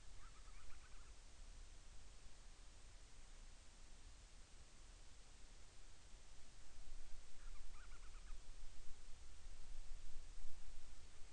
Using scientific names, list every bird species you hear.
Hydrobates castro